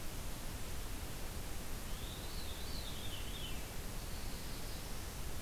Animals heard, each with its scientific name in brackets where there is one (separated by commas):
Veery (Catharus fuscescens), Black-throated Blue Warbler (Setophaga caerulescens)